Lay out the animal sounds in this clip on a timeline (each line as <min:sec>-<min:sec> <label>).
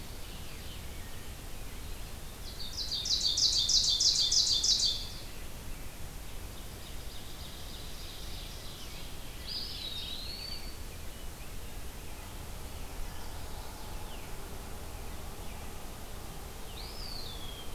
0:02.3-0:05.1 Ovenbird (Seiurus aurocapilla)
0:06.8-0:09.1 Ovenbird (Seiurus aurocapilla)
0:09.2-0:10.5 Mourning Warbler (Geothlypis philadelphia)
0:09.3-0:10.7 Eastern Wood-Pewee (Contopus virens)
0:16.7-0:17.7 Eastern Wood-Pewee (Contopus virens)